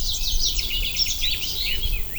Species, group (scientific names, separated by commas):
Roeseliana roeselii, Orthoptera